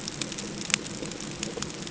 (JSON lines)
{"label": "ambient", "recorder": "HydroMoth"}